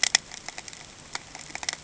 {"label": "ambient", "recorder": "HydroMoth"}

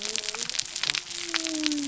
{"label": "biophony", "recorder": "SoundTrap 300"}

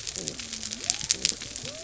{"label": "biophony", "recorder": "SoundTrap 300"}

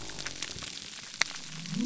{"label": "biophony", "recorder": "SoundTrap 300"}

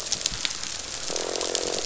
{"label": "biophony, croak", "recorder": "SoundTrap 500"}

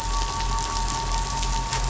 {"label": "anthrophony, boat engine", "recorder": "SoundTrap 500"}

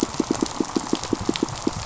{"label": "biophony, pulse", "recorder": "SoundTrap 500"}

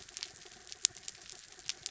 {"label": "anthrophony, mechanical", "recorder": "SoundTrap 300"}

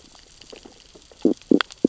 {"label": "biophony, stridulation", "recorder": "SoundTrap 600 or HydroMoth"}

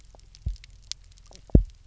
{"label": "biophony, double pulse", "recorder": "SoundTrap 300"}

